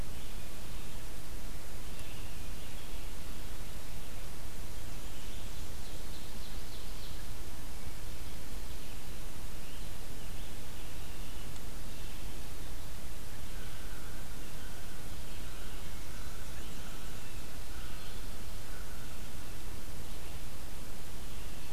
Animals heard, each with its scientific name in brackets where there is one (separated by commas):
American Crow (Corvus brachyrhynchos), Scarlet Tanager (Piranga olivacea), Ovenbird (Seiurus aurocapilla)